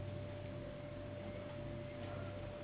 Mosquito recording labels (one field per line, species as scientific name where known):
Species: Anopheles gambiae s.s.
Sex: female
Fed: unfed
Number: one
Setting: insect culture